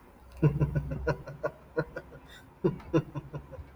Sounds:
Laughter